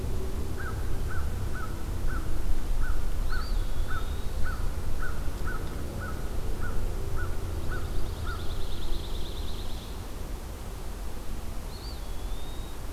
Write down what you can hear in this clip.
American Crow, Eastern Wood-Pewee, Pine Warbler